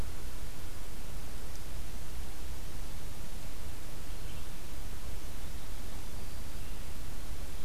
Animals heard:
forest ambience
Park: Marsh-Billings-Rockefeller National Historical Park